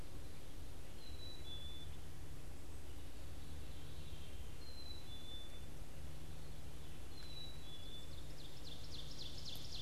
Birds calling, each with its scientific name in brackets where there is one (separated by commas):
Ovenbird (Seiurus aurocapilla), Red-eyed Vireo (Vireo olivaceus), Black-capped Chickadee (Poecile atricapillus)